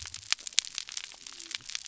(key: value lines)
label: biophony
recorder: SoundTrap 300